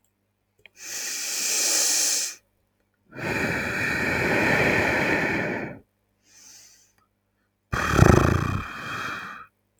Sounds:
Sigh